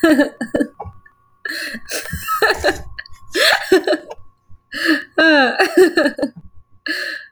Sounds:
Laughter